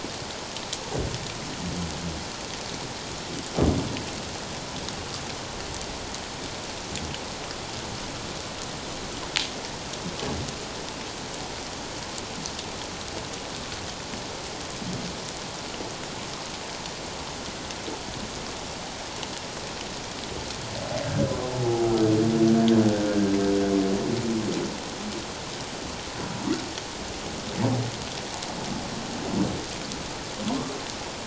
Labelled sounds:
21.0	21.8	humpback whale, 0.78 to 1.7 kHz

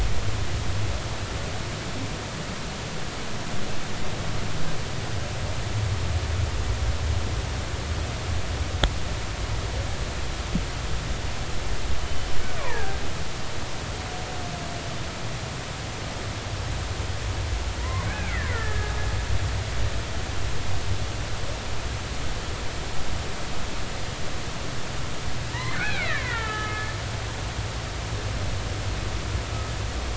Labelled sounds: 12.0	13.0	killer whale, Bigg's (transient), 1.5 to 3.1 kHz
13.5	13.8	killer whale, Bigg's (transient), 0.83 to 1.2 kHz
17.8	18.9	killer whale, Bigg's (transient), 0.93 to 2.6 kHz
25.5	26.9	killer whale, Bigg's (transient), 0.83 to 3.2 kHz

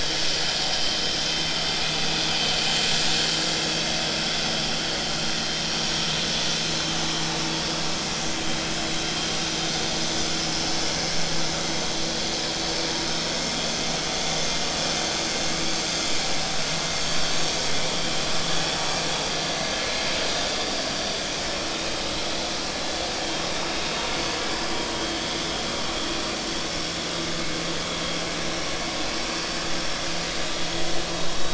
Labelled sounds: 5.1	5.3	vessel noise, 4.1 to 4.3 kHz
7.5	7.8	vessel noise, 4.6 to 4.9 kHz

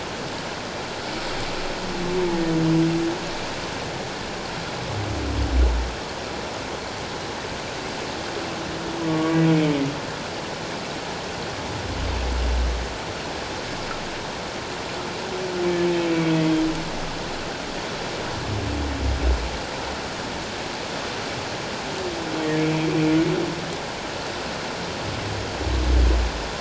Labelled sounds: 9.1	9.4	humpback whale, 1.1 to 1.2 kHz
16.1	16.3	humpback whale, 2.2 to 2.4 kHz
22.6	22.9	humpback whale, 2.3 to 2.4 kHz

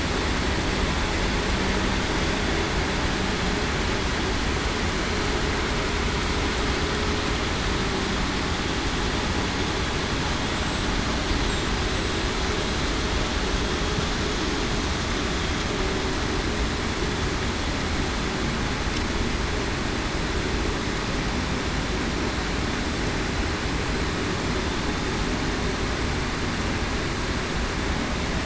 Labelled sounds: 10.8	11.2	killer whale, southern resident, 7.8 to 8.0 kHz

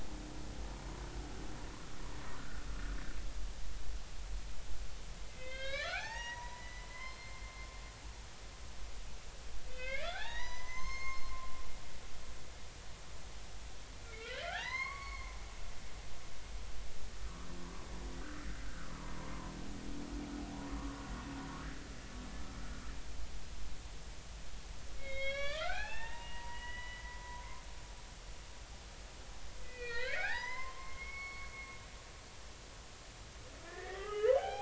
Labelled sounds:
2.4	2.7	humpback whale, 1.3 to 1.6 kHz
5.2	7.4	humpback whale, 0.80 to 6.7 kHz
9.7	11.2	humpback whale, 0.80 to 6.5 kHz
14.0	15.3	humpback whale, 0.80 to 4.6 kHz
17.2	17.5	humpback whale, 0.96 to 1.3 kHz
18.2	18.9	humpback whale, 1.2 to 1.6 kHz
25.0	27.4	humpback whale, 0.80 to 5.8 kHz
29.6	31.8	humpback whale, 0.80 to 5.2 kHz
33.7	34.6	humpback whale, 0.80 to 3.3 kHz

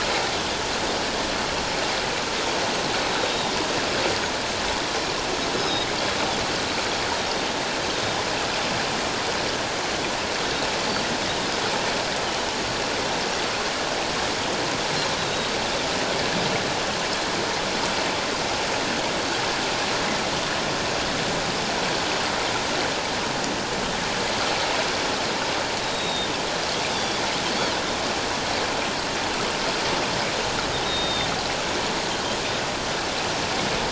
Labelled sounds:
3.2	3.6	Pacific white-sided dolphin, 3.6 to 3.8 kHz
5.6	5.9	Pacific white-sided dolphin, 3.7 to 5.3 kHz
7.9	8.2	Pacific white-sided dolphin, 3.4 to 3.8 kHz
15.2	15.5	Pacific white-sided dolphin, 3.6 to 3.8 kHz
25.8	27.2	Pacific white-sided dolphin, 3.3 to 3.9 kHz
30.8	31.3	Pacific white-sided dolphin, 3.6 to 3.8 kHz

